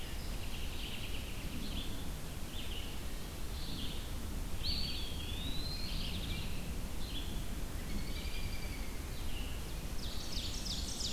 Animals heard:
Eastern Wood-Pewee (Contopus virens)
Ovenbird (Seiurus aurocapilla)
Black-and-white Warbler (Mniotilta varia)
Red-eyed Vireo (Vireo olivaceus)
American Robin (Turdus migratorius)

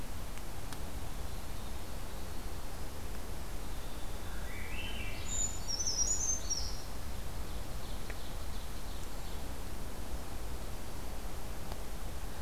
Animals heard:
Winter Wren (Troglodytes hiemalis)
Ovenbird (Seiurus aurocapilla)
Swainson's Thrush (Catharus ustulatus)
Brown Creeper (Certhia americana)

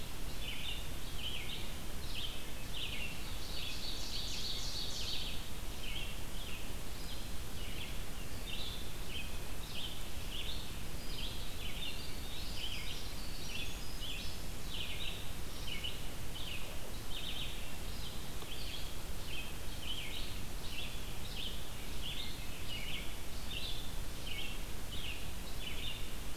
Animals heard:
Ovenbird (Seiurus aurocapilla)
Red-eyed Vireo (Vireo olivaceus)
Winter Wren (Troglodytes hiemalis)

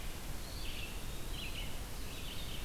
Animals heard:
Eastern Wood-Pewee (Contopus virens)
Red-eyed Vireo (Vireo olivaceus)

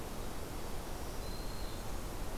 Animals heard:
Black-throated Green Warbler (Setophaga virens)

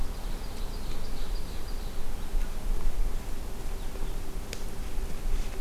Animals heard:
Ovenbird (Seiurus aurocapilla)

